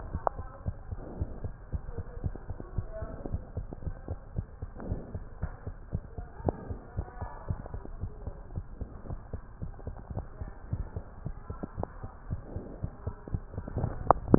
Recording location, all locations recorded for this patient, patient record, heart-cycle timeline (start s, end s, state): tricuspid valve (TV)
aortic valve (AV)+pulmonary valve (PV)+tricuspid valve (TV)+mitral valve (MV)
#Age: Child
#Sex: Female
#Height: 96.0 cm
#Weight: 15.8 kg
#Pregnancy status: False
#Murmur: Absent
#Murmur locations: nan
#Most audible location: nan
#Systolic murmur timing: nan
#Systolic murmur shape: nan
#Systolic murmur grading: nan
#Systolic murmur pitch: nan
#Systolic murmur quality: nan
#Diastolic murmur timing: nan
#Diastolic murmur shape: nan
#Diastolic murmur grading: nan
#Diastolic murmur pitch: nan
#Diastolic murmur quality: nan
#Outcome: Normal
#Campaign: 2015 screening campaign
0.00	0.08	diastole
0.08	0.22	S1
0.22	0.36	systole
0.36	0.48	S2
0.48	0.64	diastole
0.64	0.78	S1
0.78	0.88	systole
0.88	1.00	S2
1.00	1.14	diastole
1.14	1.30	S1
1.30	1.42	systole
1.42	1.52	S2
1.52	1.68	diastole
1.68	1.82	S1
1.82	1.96	systole
1.96	2.06	S2
2.06	2.24	diastole
2.24	2.36	S1
2.36	2.48	systole
2.48	2.58	S2
2.58	2.74	diastole
2.74	2.90	S1
2.90	3.00	systole
3.00	3.10	S2
3.10	3.26	diastole
3.26	3.42	S1
3.42	3.54	systole
3.54	3.68	S2
3.68	3.84	diastole
3.84	3.98	S1
3.98	4.08	systole
4.08	4.18	S2
4.18	4.32	diastole
4.32	4.46	S1
4.46	4.58	systole
4.58	4.70	S2
4.70	4.86	diastole
4.86	5.04	S1
5.04	5.13	systole
5.13	5.26	S2
5.26	5.40	diastole
5.40	5.54	S1
5.54	5.66	systole
5.66	5.74	S2
5.74	5.92	diastole
5.92	6.06	S1
6.06	6.18	systole
6.18	6.28	S2
6.28	6.44	diastole
6.44	6.58	S1
6.58	6.67	systole
6.67	6.80	S2
6.80	6.96	diastole
6.96	7.06	S1
7.06	7.20	systole
7.20	7.30	S2
7.30	7.48	diastole
7.48	7.64	S1
7.64	7.74	systole
7.74	7.82	S2
7.82	7.98	diastole
7.98	8.12	S1
8.12	8.22	systole
8.22	8.36	S2
8.36	8.52	diastole
8.52	8.66	S1
8.66	8.80	systole
8.80	8.90	S2
8.90	9.08	diastole
9.08	9.22	S1
9.22	9.31	systole
9.31	9.40	S2
9.40	9.58	diastole
9.58	9.72	S1
9.72	9.86	systole
9.86	9.96	S2
9.96	10.10	diastole
10.10	10.26	S1
10.26	10.40	systole
10.40	10.52	S2
10.52	10.70	diastole
10.70	10.88	S1
10.88	10.96	systole
10.96	11.04	S2
11.04	11.22	diastole
11.22	11.36	S1
11.36	11.50	systole
11.50	11.60	S2
11.60	11.78	diastole
11.78	11.86	S1
11.86	12.02	systole
12.02	12.12	S2
12.12	12.28	diastole
12.28	12.44	S1
12.44	12.56	systole
12.56	12.66	S2
12.66	12.82	diastole
12.82	12.94	S1
12.94	13.06	systole
13.06	13.16	S2
13.16	13.34	diastole
13.34	13.50	S1